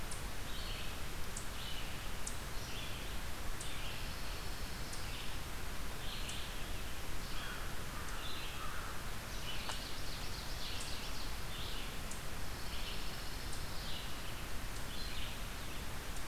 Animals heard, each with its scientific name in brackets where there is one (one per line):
American Crow (Corvus brachyrhynchos)
Eastern Chipmunk (Tamias striatus)
Ovenbird (Seiurus aurocapilla)
Pine Warbler (Setophaga pinus)
Red-eyed Vireo (Vireo olivaceus)